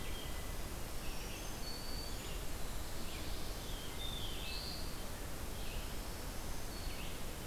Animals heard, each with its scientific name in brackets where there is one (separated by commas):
Black-throated Green Warbler (Setophaga virens), Black-throated Blue Warbler (Setophaga caerulescens), Red-eyed Vireo (Vireo olivaceus)